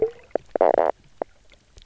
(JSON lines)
{"label": "biophony, knock croak", "recorder": "SoundTrap 300"}